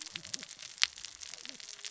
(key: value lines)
label: biophony, cascading saw
recorder: SoundTrap 600 or HydroMoth